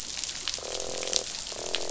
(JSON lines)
{"label": "biophony, croak", "recorder": "SoundTrap 500"}